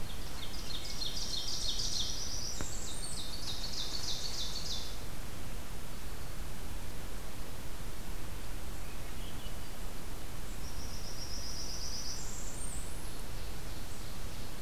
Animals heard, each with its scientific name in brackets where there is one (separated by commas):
Swainson's Thrush (Catharus ustulatus), Ovenbird (Seiurus aurocapilla), Blackburnian Warbler (Setophaga fusca)